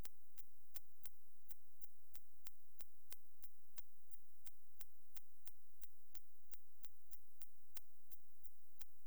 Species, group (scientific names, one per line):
Yersinella raymondii
Orthoptera